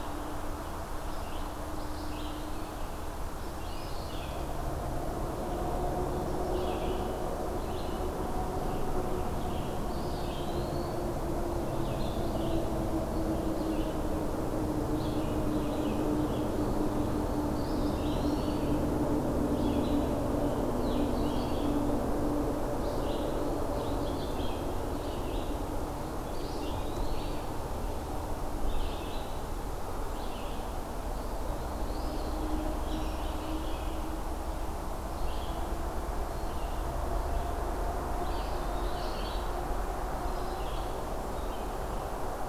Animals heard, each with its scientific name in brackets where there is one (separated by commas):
Eastern Phoebe (Sayornis phoebe), Eastern Wood-Pewee (Contopus virens), Red-eyed Vireo (Vireo olivaceus)